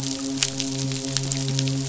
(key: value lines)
label: biophony, midshipman
recorder: SoundTrap 500